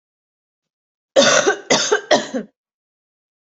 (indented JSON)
{
  "expert_labels": [
    {
      "quality": "good",
      "cough_type": "dry",
      "dyspnea": false,
      "wheezing": false,
      "stridor": false,
      "choking": false,
      "congestion": false,
      "nothing": true,
      "diagnosis": "upper respiratory tract infection",
      "severity": "mild"
    }
  ],
  "age": 37,
  "gender": "female",
  "respiratory_condition": false,
  "fever_muscle_pain": false,
  "status": "symptomatic"
}